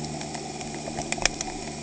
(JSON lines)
{"label": "anthrophony, boat engine", "recorder": "HydroMoth"}